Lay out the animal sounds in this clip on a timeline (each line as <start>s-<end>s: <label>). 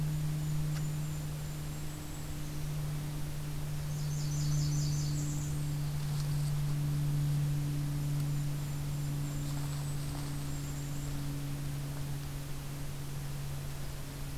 0.0s-2.6s: Golden-crowned Kinglet (Regulus satrapa)
3.8s-5.9s: Blackburnian Warbler (Setophaga fusca)
7.9s-11.2s: Golden-crowned Kinglet (Regulus satrapa)